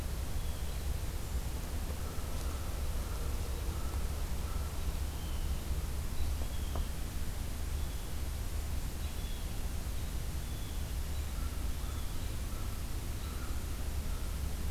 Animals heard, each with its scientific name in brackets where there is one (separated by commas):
American Crow (Corvus brachyrhynchos), Blue Jay (Cyanocitta cristata)